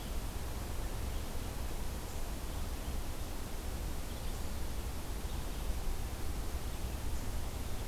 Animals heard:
forest ambience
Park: Marsh-Billings-Rockefeller National Historical Park